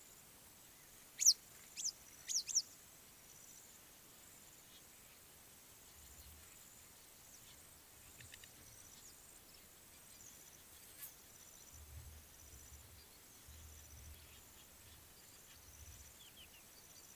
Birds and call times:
Western Yellow Wagtail (Motacilla flava): 0:01.3
Blacksmith Lapwing (Vanellus armatus): 0:08.3
Quailfinch (Ortygospiza atricollis): 0:13.0

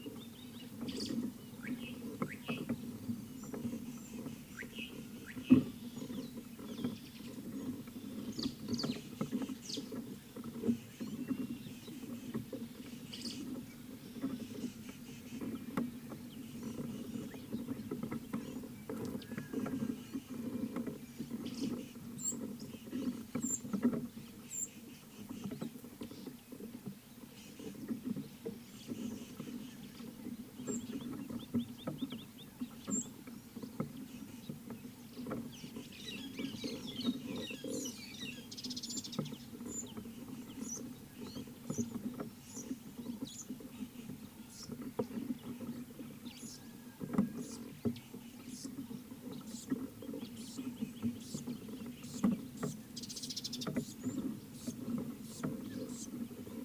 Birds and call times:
Slate-colored Boubou (Laniarius funebris): 0:04.8
White-browed Sparrow-Weaver (Plocepasser mahali): 0:13.2
Gabar Goshawk (Micronisus gabar): 0:31.8
White-headed Buffalo-Weaver (Dinemellia dinemelli): 0:36.9
Mariqua Sunbird (Cinnyris mariquensis): 0:38.9, 0:53.3

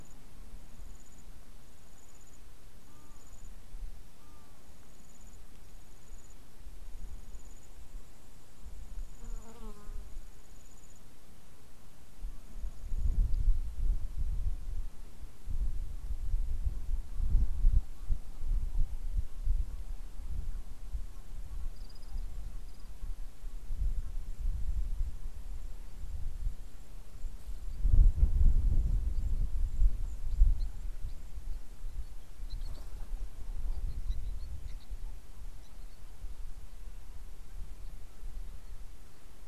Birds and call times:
Egyptian Goose (Alopochen aegyptiaca): 0:04.3
Quailfinch (Ortygospiza atricollis): 0:34.6

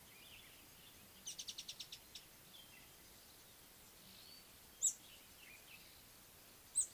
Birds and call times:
Speckled Mousebird (Colius striatus): 0:01.6, 0:04.9

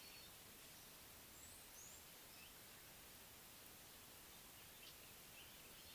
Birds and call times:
Red-cheeked Cordonbleu (Uraeginthus bengalus): 0:01.5

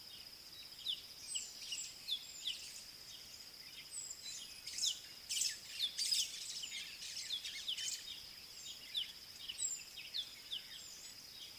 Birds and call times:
White-browed Sparrow-Weaver (Plocepasser mahali): 0:06.1
Southern Black-Flycatcher (Melaenornis pammelaina): 0:09.7

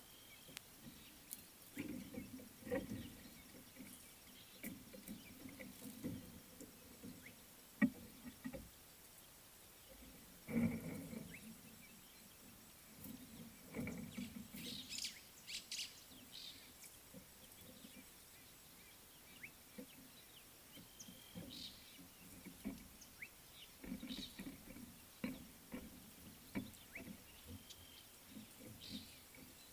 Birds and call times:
White-browed Sparrow-Weaver (Plocepasser mahali): 0:15.6
Fork-tailed Drongo (Dicrurus adsimilis): 0:21.6

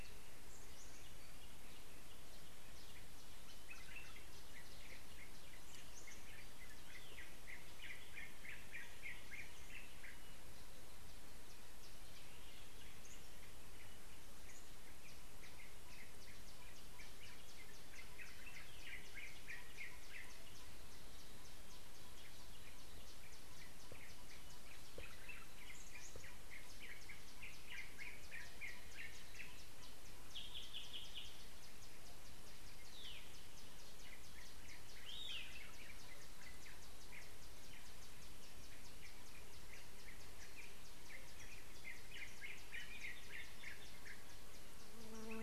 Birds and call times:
Yellow-whiskered Greenbul (Eurillas latirostris): 0:08.6, 0:19.3, 0:30.8, 0:43.1
Waller's Starling (Onychognathus walleri): 0:35.3

